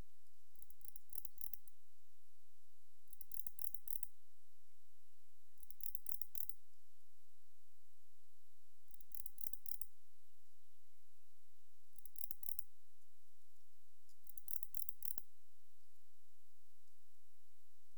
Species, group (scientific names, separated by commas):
Barbitistes yersini, Orthoptera